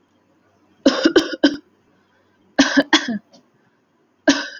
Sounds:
Cough